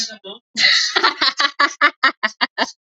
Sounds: Laughter